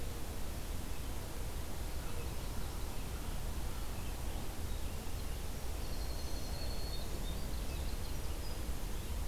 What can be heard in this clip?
Red-eyed Vireo, Black-throated Green Warbler, Winter Wren